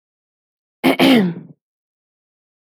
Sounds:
Throat clearing